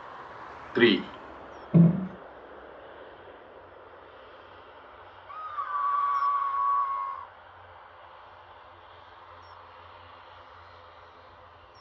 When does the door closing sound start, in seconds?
1.7 s